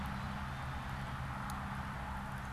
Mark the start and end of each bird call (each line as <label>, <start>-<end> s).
Black-capped Chickadee (Poecile atricapillus), 0.0-0.9 s